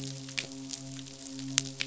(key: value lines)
label: biophony, midshipman
recorder: SoundTrap 500